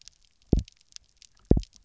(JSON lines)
{"label": "biophony, double pulse", "recorder": "SoundTrap 300"}